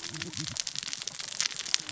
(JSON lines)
{"label": "biophony, cascading saw", "recorder": "SoundTrap 600 or HydroMoth"}